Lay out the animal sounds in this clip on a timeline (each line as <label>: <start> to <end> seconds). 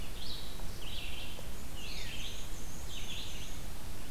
Red-eyed Vireo (Vireo olivaceus): 0.0 to 3.6 seconds
Black-and-white Warbler (Mniotilta varia): 1.4 to 3.7 seconds
Veery (Catharus fuscescens): 1.6 to 2.2 seconds